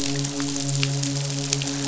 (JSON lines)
{"label": "biophony, midshipman", "recorder": "SoundTrap 500"}